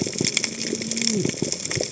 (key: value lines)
label: biophony, cascading saw
recorder: HydroMoth